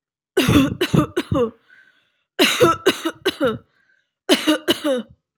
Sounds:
Cough